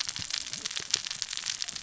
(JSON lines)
{"label": "biophony, cascading saw", "recorder": "SoundTrap 600 or HydroMoth"}